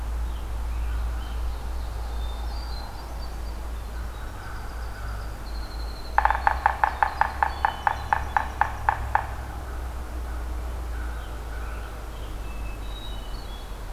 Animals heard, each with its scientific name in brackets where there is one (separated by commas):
American Robin (Turdus migratorius), Winter Wren (Troglodytes hiemalis), Hermit Thrush (Catharus guttatus), American Crow (Corvus brachyrhynchos), Yellow-bellied Sapsucker (Sphyrapicus varius)